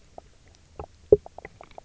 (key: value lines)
label: biophony, knock croak
recorder: SoundTrap 300